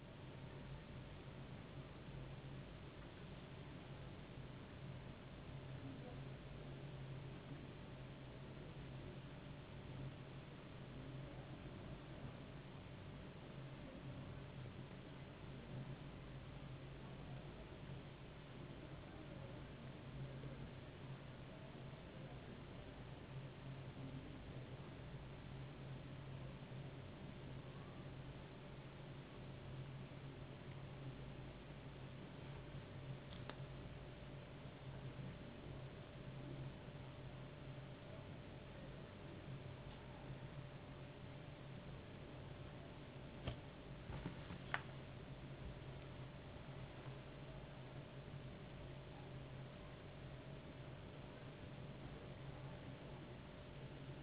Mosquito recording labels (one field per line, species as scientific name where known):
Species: no mosquito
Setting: insect culture